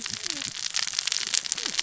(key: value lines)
label: biophony, cascading saw
recorder: SoundTrap 600 or HydroMoth